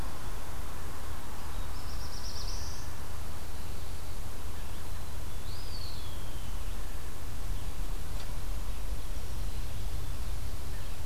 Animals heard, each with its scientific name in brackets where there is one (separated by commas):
Eastern Wood-Pewee (Contopus virens), Black-throated Blue Warbler (Setophaga caerulescens)